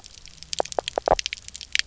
{"label": "biophony, knock croak", "recorder": "SoundTrap 300"}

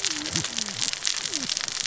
{"label": "biophony, cascading saw", "recorder": "SoundTrap 600 or HydroMoth"}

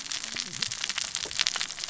{"label": "biophony, cascading saw", "recorder": "SoundTrap 600 or HydroMoth"}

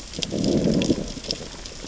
{"label": "biophony, growl", "recorder": "SoundTrap 600 or HydroMoth"}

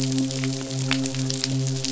{"label": "biophony, midshipman", "recorder": "SoundTrap 500"}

